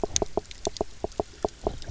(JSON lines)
{"label": "biophony, knock croak", "recorder": "SoundTrap 300"}